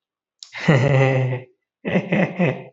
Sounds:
Laughter